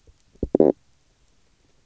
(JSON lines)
{"label": "biophony, stridulation", "recorder": "SoundTrap 300"}